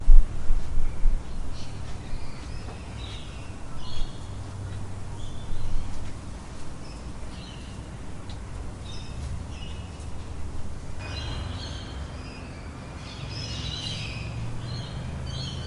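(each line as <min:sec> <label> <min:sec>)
0:00.0 Low and steady muffled urban noise. 0:15.7
0:01.6 A squeaking noise is heard in the distance. 0:06.1
0:06.8 A squeaking noise is heard in the distance. 0:10.5
0:10.9 A loud, high-pitched squeaking noise nearby. 0:15.7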